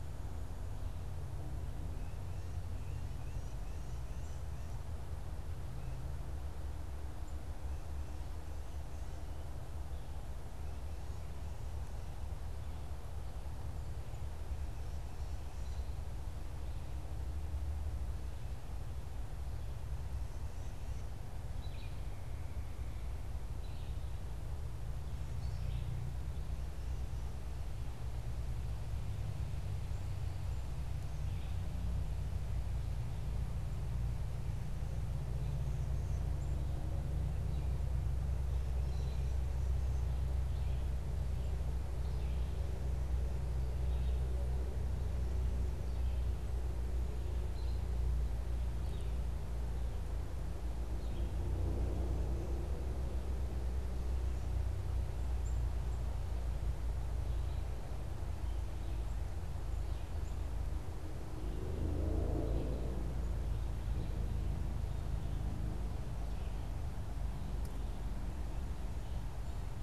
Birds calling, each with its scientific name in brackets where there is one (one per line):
Tufted Titmouse (Baeolophus bicolor)
Red-eyed Vireo (Vireo olivaceus)